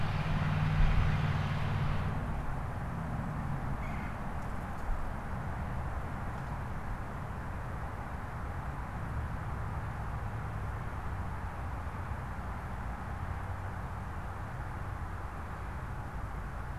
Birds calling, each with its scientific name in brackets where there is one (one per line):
Red-bellied Woodpecker (Melanerpes carolinus)